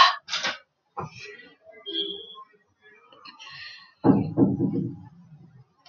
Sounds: Sigh